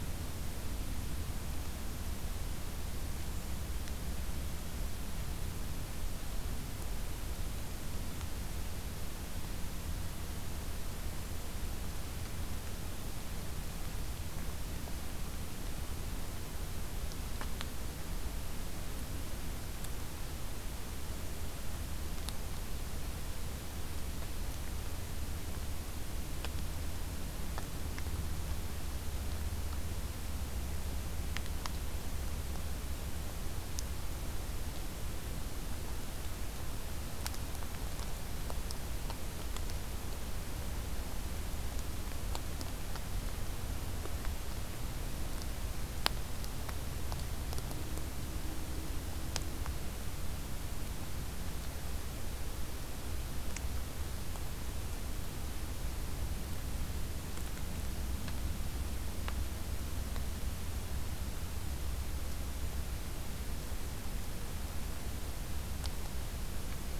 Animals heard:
forest ambience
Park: Acadia National Park